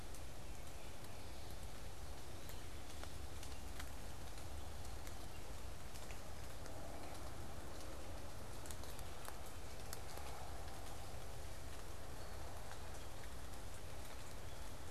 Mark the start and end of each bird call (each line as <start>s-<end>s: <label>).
0.0s-1.8s: American Goldfinch (Spinus tristis)